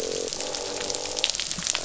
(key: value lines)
label: biophony, croak
recorder: SoundTrap 500